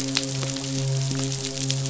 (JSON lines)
{"label": "biophony, midshipman", "recorder": "SoundTrap 500"}